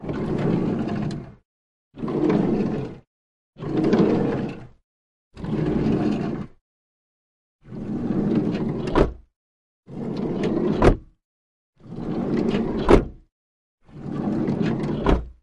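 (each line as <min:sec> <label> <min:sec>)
0:00.0 The sliding door opens periodically. 0:06.5
0:07.6 A sliding door closes periodically. 0:15.4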